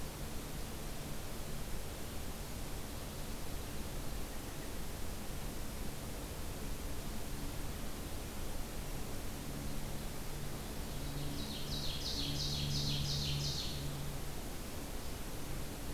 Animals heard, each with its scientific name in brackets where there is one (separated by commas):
Ovenbird (Seiurus aurocapilla)